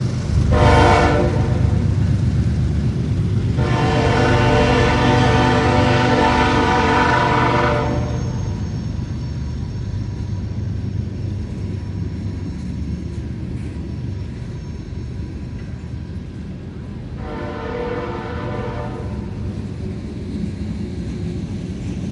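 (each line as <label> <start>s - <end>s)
A diesel train engine rumbles loudly up close and gradually fades into the distance. 0.0s - 22.1s
A train horn sounds loudly with a short, deep, resonant blast from close range. 0.3s - 1.9s
A train horn sounds loudly and deeply from close range. 3.6s - 8.6s
A distant train brakes with a high-pitched metallic screech. 8.0s - 16.2s
A train horn sounds loudly with a deep, resonant blast from a distance. 16.8s - 19.6s
A train produces a rhythmic clattering sound as it moves along the rails in the distance. 20.2s - 22.1s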